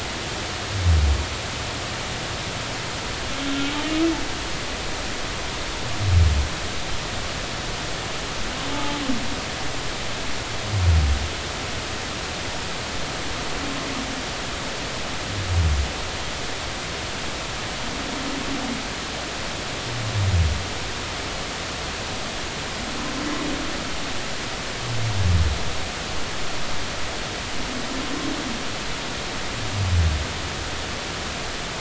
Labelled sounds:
3.5	3.8	humpback whale, 1.3 to 1.5 kHz
8.7	9.0	humpback whale, 0.83 to 0.90 kHz

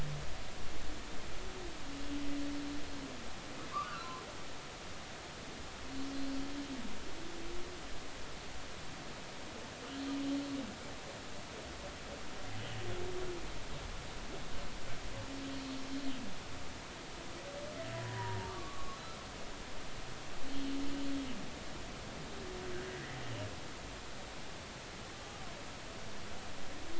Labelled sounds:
3.7	4.2	humpback whale, 0.99 to 1.7 kHz
17.9	19.0	humpback whale, 0.86 to 1.2 kHz
22.9	23.2	humpback whale, 1.6 to 2.2 kHz

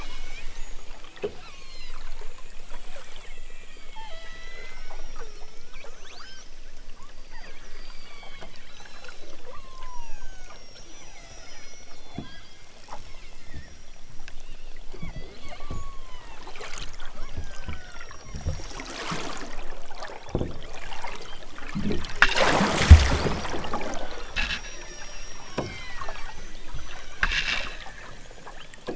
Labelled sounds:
0.0	0.5	killer whale, southern Alaska resident, 2.0 to 7.4 kHz
1.5	2.0	killer whale, southern Alaska resident, 0.83 to 8.0 kHz
3.4	6.5	killer whale, southern Alaska resident, 0.42 to 6.5 kHz
7.7	12.7	killer whale, southern Alaska resident, 0.42 to 8.0 kHz
13.0	13.5	killer whale, southern Alaska resident, 1.6 to 4.8 kHz
14.4	16.5	killer whale, southern Alaska resident, 0.46 to 6.7 kHz
17.2	18.2	killer whale, southern Alaska resident, 1.0 to 6.1 kHz
20.2	20.7	killer whale, southern Alaska resident, 1.5 to 5.9 kHz
21.1	21.5	killer whale, southern Alaska resident, 2.0 to 4.9 kHz
23.4	24.3	killer whale, southern Alaska resident, 2.4 to 6.1 kHz
24.6	26.3	killer whale, southern Alaska resident, 0.97 to 6.1 kHz
28.4	28.9	killer whale, southern Alaska resident, 1.9 to 4.9 kHz

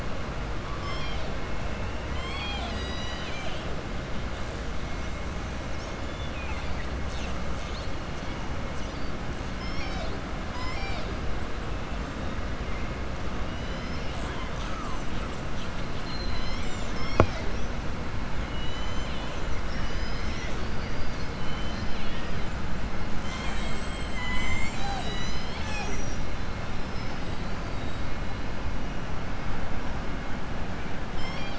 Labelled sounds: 0.7	1.3	killer whale, southern resident, 1.1 to 7.5 kHz
2.0	3.7	killer whale, southern resident, 0.80 to 7.9 kHz
6.1	6.9	killer whale, southern resident, 1.9 to 4.7 kHz
9.5	10.2	killer whale, southern resident, 0.68 to 7.5 kHz
10.4	11.1	killer whale, southern resident, 0.80 to 7.9 kHz
18.5	19.4	killer whale, southern resident, 2.0 to 8.0 kHz
21.4	22.1	killer whale, southern resident, 2.2 to 5.8 kHz
26.7	27.5	killer whale, southern resident, 3.8 to 5.3 kHz

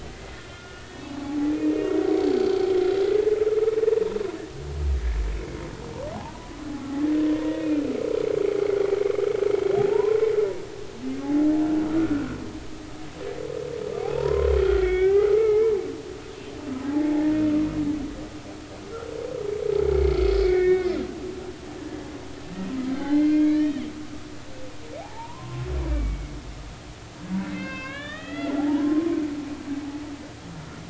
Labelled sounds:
0.0	1.4	humpback whale, 0.80 to 3.4 kHz
1.7	2.6	humpback whale, 2.7 to 4.7 kHz
7.3	7.8	humpback whale, 1.8 to 2.6 kHz
9.9	10.3	humpback whale, 0.86 to 1.1 kHz
12.0	12.3	humpback whale, 1.3 to 1.5 kHz
14.0	15.7	humpback whale, 0.80 to 3.5 kHz
16.9	17.2	humpback whale, 0.80 to 0.93 kHz
19.9	21.0	humpback whale, 1.7 to 2.4 kHz
22.5	23.8	humpback whale, 0.80 to 4.3 kHz
25.0	26.3	humpback whale, 0.80 to 2.4 kHz
27.5	29.1	humpback whale, 0.80 to 5.3 kHz

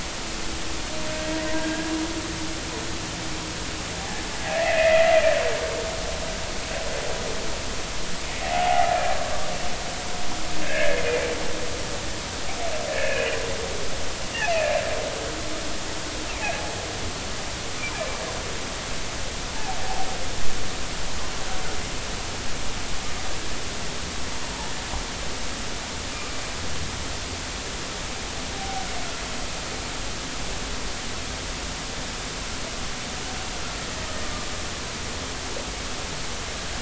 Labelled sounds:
1.2	1.9	humpback whale, 1.6 to 2.0 kHz
4.5	5.1	humpback whale, 1.6 to 2.7 kHz
8.4	9.5	humpback whale, 0.80 to 1.2 kHz
10.6	11.0	humpback whale, 1.5 to 2.3 kHz
12.9	13.3	humpback whale, 1.6 to 2.6 kHz
14.5	14.8	humpback whale, 2.3 to 2.8 kHz
19.5	19.8	humpback whale, 0.80 to 0.93 kHz
28.6	28.9	humpback whale, 0.80 to 0.83 kHz

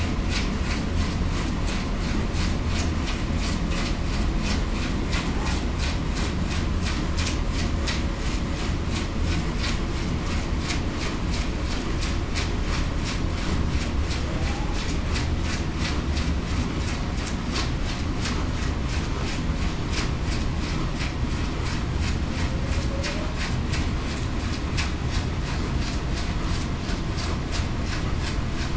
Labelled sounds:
22.9	23.3	humpback whale, 0.52 to 0.66 kHz

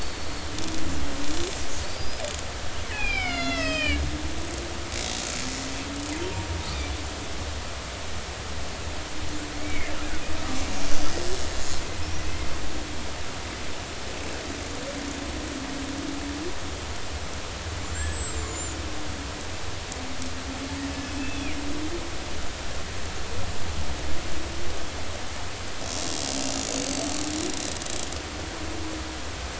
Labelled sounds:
0.0	0.5	killer whale, Bigg's (transient), 4.3 to 4.6 kHz
1.8	4.0	killer whale, Bigg's (transient), 0.80 to 7.8 kHz
4.9	5.3	killer whale, Bigg's (transient), 3.7 to 3.9 kHz
9.6	9.9	killer whale, Bigg's (transient), 1.9 to 2.4 kHz
12.0	12.3	killer whale, Bigg's (transient), 5.2 to 6.0 kHz
17.8	18.8	killer whale, Bigg's (transient), 1.5 to 7.8 kHz
21.2	21.6	killer whale, Bigg's (transient), 2.2 to 5.7 kHz
26.4	27.1	killer whale, Bigg's (transient), 4.4 to 7.9 kHz

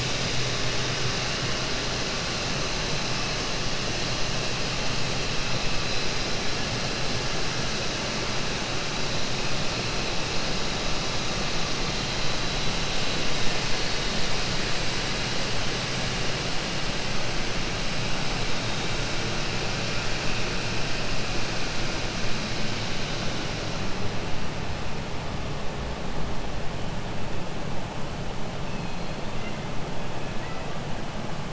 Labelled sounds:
28.7	29.2	killer whale, 2.5 to 4.3 kHz
30.3	30.7	killer whale, 1.1 to 2.6 kHz

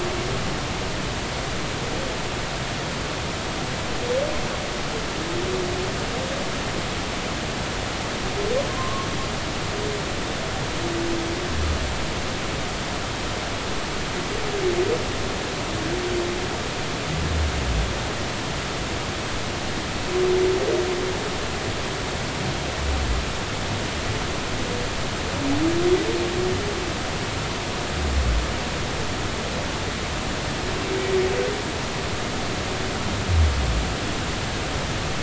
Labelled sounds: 8.7	9.1	humpback whale, 0.99 to 1.2 kHz

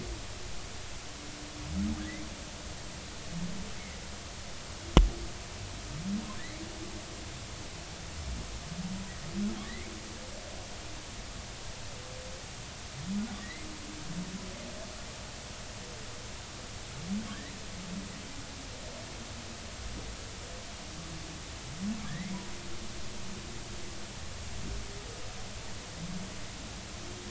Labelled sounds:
6.4	6.6	humpback whale, 1.7 to 2.3 kHz
9.6	9.9	humpback whale, 1.7 to 2.3 kHz
13.4	13.7	humpback whale, 1.8 to 2.2 kHz
22.0	22.3	humpback whale, 1.6 to 2.2 kHz

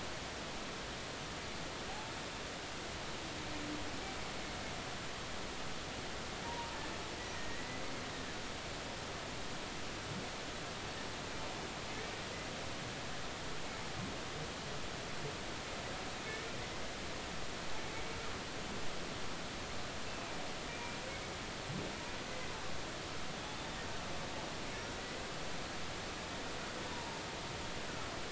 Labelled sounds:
6.4	6.8	humpback whale, 0.86 to 1.0 kHz
7.3	7.8	humpback whale, 1.8 to 2.0 kHz
20.7	21.0	humpback whale, 2.3 to 2.4 kHz
26.9	27.2	humpback whale, 0.83 to 1.0 kHz

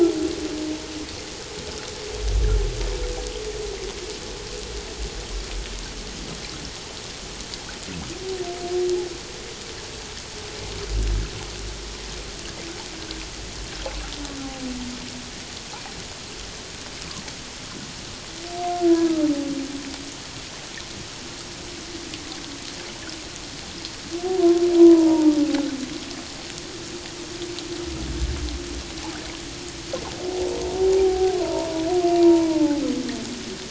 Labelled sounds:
18.7	19.0	humpback whale, 1.4 to 1.5 kHz
24.7	25.7	humpback whale, 0.78 to 1.1 kHz
31.0	31.9	humpback whale, 0.78 to 1.0 kHz
32.2	32.8	humpback whale, 0.81 to 1.1 kHz

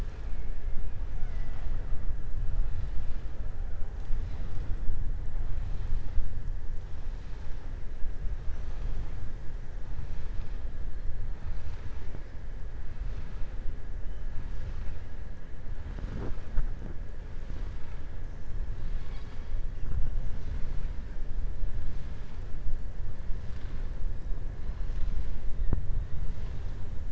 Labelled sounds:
1.1	1.9	killer whale, southern resident, 0.65 to 5.8 kHz
18.7	19.5	killer whale, southern resident, 1.3 to 5.5 kHz

